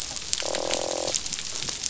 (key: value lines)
label: biophony, croak
recorder: SoundTrap 500